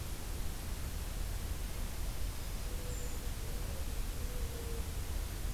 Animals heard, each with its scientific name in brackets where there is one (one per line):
Brown Creeper (Certhia americana)